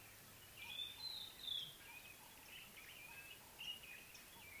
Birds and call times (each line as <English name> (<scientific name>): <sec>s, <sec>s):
White-browed Robin-Chat (Cossypha heuglini): 1.3s